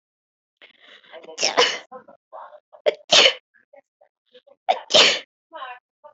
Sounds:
Sneeze